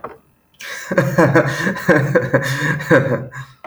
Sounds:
Laughter